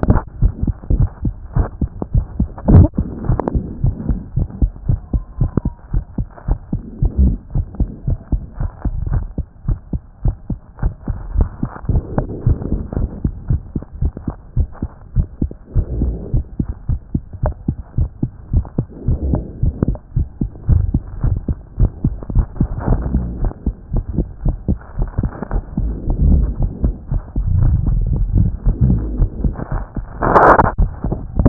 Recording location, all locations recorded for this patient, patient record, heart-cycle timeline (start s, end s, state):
tricuspid valve (TV)
pulmonary valve (PV)+tricuspid valve (TV)+mitral valve (MV)
#Age: Child
#Sex: Female
#Height: 110.0 cm
#Weight: 16.1 kg
#Pregnancy status: False
#Murmur: Absent
#Murmur locations: nan
#Most audible location: nan
#Systolic murmur timing: nan
#Systolic murmur shape: nan
#Systolic murmur grading: nan
#Systolic murmur pitch: nan
#Systolic murmur quality: nan
#Diastolic murmur timing: nan
#Diastolic murmur shape: nan
#Diastolic murmur grading: nan
#Diastolic murmur pitch: nan
#Diastolic murmur quality: nan
#Outcome: Abnormal
#Campaign: 2014 screening campaign
0.00	8.08	unannotated
8.08	8.18	S1
8.18	8.32	systole
8.32	8.42	S2
8.42	8.60	diastole
8.60	8.70	S1
8.70	8.84	systole
8.84	8.92	S2
8.92	9.12	diastole
9.12	9.24	S1
9.24	9.38	systole
9.38	9.46	S2
9.46	9.66	diastole
9.66	9.78	S1
9.78	9.92	systole
9.92	10.00	S2
10.00	10.24	diastole
10.24	10.36	S1
10.36	10.50	systole
10.50	10.58	S2
10.58	10.82	diastole
10.82	10.94	S1
10.94	11.08	systole
11.08	11.16	S2
11.16	11.36	diastole
11.36	11.48	S1
11.48	11.62	systole
11.62	11.70	S2
11.70	11.90	diastole
11.90	12.02	S1
12.02	12.16	systole
12.16	12.26	S2
12.26	12.46	diastole
12.46	12.58	S1
12.58	12.72	systole
12.72	12.80	S2
12.80	12.98	diastole
12.98	13.10	S1
13.10	13.24	systole
13.24	13.32	S2
13.32	13.50	diastole
13.50	13.60	S1
13.60	13.74	systole
13.74	13.82	S2
13.82	14.02	diastole
14.02	14.12	S1
14.12	14.26	systole
14.26	14.34	S2
14.34	14.56	diastole
14.56	14.68	S1
14.68	14.82	systole
14.82	14.90	S2
14.90	15.16	diastole
15.16	15.26	S1
15.26	15.42	systole
15.42	15.50	S2
15.50	15.76	diastole
15.76	15.86	S1
15.86	16.02	systole
16.02	16.14	S2
16.14	16.34	diastole
16.34	16.44	S1
16.44	16.60	systole
16.60	16.68	S2
16.68	16.88	diastole
16.88	17.00	S1
17.00	17.14	systole
17.14	17.22	S2
17.22	17.42	diastole
17.42	17.54	S1
17.54	17.68	systole
17.68	17.76	S2
17.76	17.98	diastole
17.98	18.08	S1
18.08	18.22	systole
18.22	18.32	S2
18.32	18.54	diastole
18.54	18.64	S1
18.64	18.76	systole
18.76	18.86	S2
18.86	19.08	diastole
19.08	19.18	S1
19.18	19.30	systole
19.30	19.42	S2
19.42	19.62	diastole
19.62	19.74	S1
19.74	19.86	systole
19.86	19.96	S2
19.96	20.16	diastole
20.16	20.28	S1
20.28	20.40	systole
20.40	20.50	S2
20.50	20.70	diastole
20.70	20.86	S1
20.86	20.94	systole
20.94	21.02	S2
21.02	21.24	diastole
21.24	21.36	S1
21.36	21.48	systole
21.48	21.56	S2
21.56	21.78	diastole
21.78	21.90	S1
21.90	22.04	systole
22.04	22.14	S2
22.14	22.34	diastole
22.34	22.46	S1
22.46	22.60	systole
22.60	22.68	S2
22.68	22.88	diastole
22.88	23.02	S1
23.02	23.14	systole
23.14	23.24	S2
23.24	23.42	diastole
23.42	23.52	S1
23.52	23.66	systole
23.66	23.74	S2
23.74	23.94	diastole
23.94	24.04	S1
24.04	24.16	systole
24.16	24.26	S2
24.26	24.44	diastole
24.44	24.56	S1
24.56	24.68	systole
24.68	24.78	S2
24.78	24.98	diastole
24.98	25.08	S1
25.08	25.20	systole
25.20	25.32	S2
25.32	25.54	diastole
25.54	25.64	S1
25.64	25.80	systole
25.80	25.90	S2
25.90	26.22	diastole
26.22	31.49	unannotated